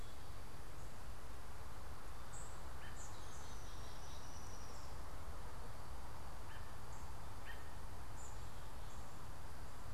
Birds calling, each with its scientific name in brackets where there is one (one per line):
Downy Woodpecker (Dryobates pubescens)
unidentified bird
American Robin (Turdus migratorius)